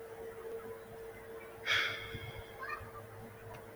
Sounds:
Sigh